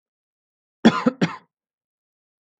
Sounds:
Cough